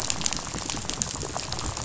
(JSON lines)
{"label": "biophony, rattle", "recorder": "SoundTrap 500"}